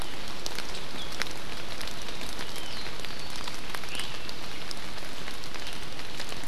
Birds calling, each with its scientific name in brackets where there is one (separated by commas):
Iiwi (Drepanis coccinea)